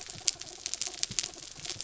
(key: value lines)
label: anthrophony, mechanical
recorder: SoundTrap 300